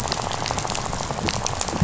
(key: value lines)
label: biophony, rattle
recorder: SoundTrap 500